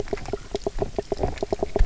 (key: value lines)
label: biophony, knock croak
recorder: SoundTrap 300